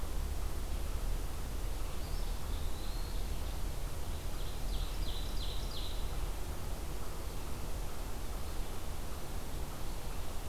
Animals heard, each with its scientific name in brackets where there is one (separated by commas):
Ovenbird (Seiurus aurocapilla), unknown mammal, Eastern Wood-Pewee (Contopus virens)